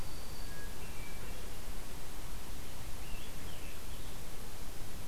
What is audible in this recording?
Black-throated Green Warbler, Hermit Thrush, Scarlet Tanager